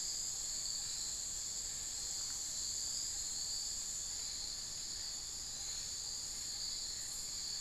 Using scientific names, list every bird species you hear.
Megascops watsonii